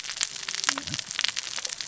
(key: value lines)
label: biophony, cascading saw
recorder: SoundTrap 600 or HydroMoth